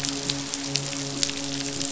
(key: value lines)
label: biophony, midshipman
recorder: SoundTrap 500